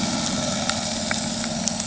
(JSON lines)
{"label": "anthrophony, boat engine", "recorder": "HydroMoth"}